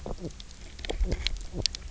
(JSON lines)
{"label": "biophony, knock croak", "recorder": "SoundTrap 300"}